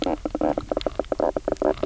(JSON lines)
{"label": "biophony, knock croak", "recorder": "SoundTrap 300"}